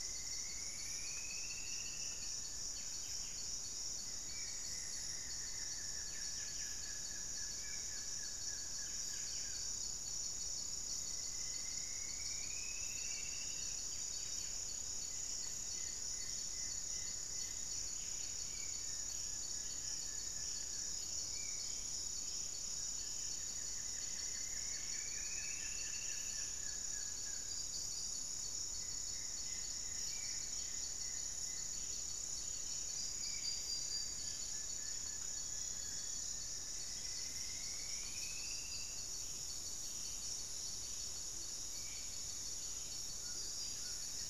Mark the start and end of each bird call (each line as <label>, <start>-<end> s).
Striped Woodcreeper (Xiphorhynchus obsoletus), 0.0-2.4 s
Spot-winged Antshrike (Pygiptila stellaris), 0.0-13.3 s
Buff-breasted Wren (Cantorchilus leucotis), 0.0-26.2 s
Black-faced Antthrush (Formicarius analis), 0.7-3.3 s
Goeldi's Antbird (Akletos goeldii), 3.8-6.1 s
Buff-throated Woodcreeper (Xiphorhynchus guttatus), 4.7-9.9 s
Striped Woodcreeper (Xiphorhynchus obsoletus), 10.9-13.8 s
Goeldi's Antbird (Akletos goeldii), 14.8-18.0 s
Spot-winged Antshrike (Pygiptila stellaris), 18.3-21.8 s
Plain-winged Antshrike (Thamnophilus schistaceus), 18.8-21.1 s
Buff-throated Woodcreeper (Xiphorhynchus guttatus), 22.6-27.7 s
Striped Woodcreeper (Xiphorhynchus obsoletus), 23.6-26.5 s
Goeldi's Antbird (Akletos goeldii), 28.6-32.0 s
Spot-winged Antshrike (Pygiptila stellaris), 29.9-33.4 s
Undulated Tinamou (Crypturellus undulatus), 31.5-33.5 s
Plain-winged Antshrike (Thamnophilus schistaceus), 33.4-36.2 s
Black-faced Antthrush (Formicarius analis), 34.5-37.0 s
Striped Woodcreeper (Xiphorhynchus obsoletus), 36.3-39.2 s
Buff-breasted Wren (Cantorchilus leucotis), 36.7-44.3 s
Amazonian Motmot (Momotus momota), 41.2-41.6 s
Spot-winged Antshrike (Pygiptila stellaris), 41.3-44.3 s
Amazonian Trogon (Trogon ramonianus), 42.9-44.3 s
Buff-throated Woodcreeper (Xiphorhynchus guttatus), 43.5-44.3 s